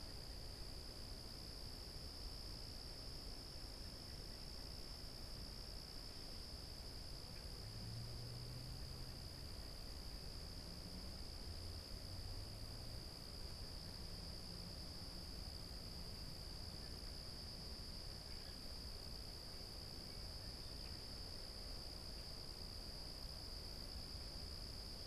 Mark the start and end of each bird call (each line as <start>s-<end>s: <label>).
0.0s-23.4s: American Robin (Turdus migratorius)